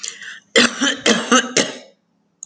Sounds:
Cough